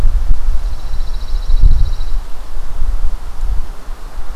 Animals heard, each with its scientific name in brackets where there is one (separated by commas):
Pine Warbler (Setophaga pinus)